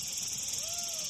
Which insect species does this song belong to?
Tettigettalna argentata